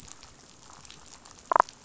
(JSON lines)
{"label": "biophony, damselfish", "recorder": "SoundTrap 500"}